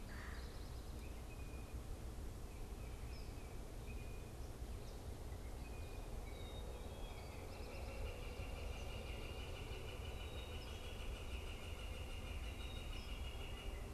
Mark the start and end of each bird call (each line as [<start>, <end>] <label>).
[0.00, 0.50] Red-bellied Woodpecker (Melanerpes carolinus)
[2.10, 3.60] Tufted Titmouse (Baeolophus bicolor)
[3.90, 6.80] unidentified bird
[6.80, 13.90] Northern Flicker (Colaptes auratus)